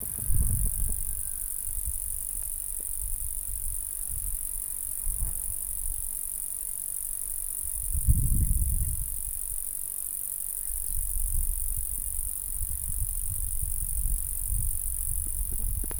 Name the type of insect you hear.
orthopteran